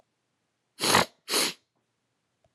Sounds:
Sniff